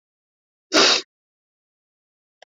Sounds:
Sniff